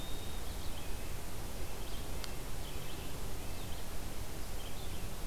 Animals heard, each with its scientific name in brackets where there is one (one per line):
Red-eyed Vireo (Vireo olivaceus)
Red-breasted Nuthatch (Sitta canadensis)